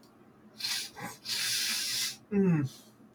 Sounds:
Sniff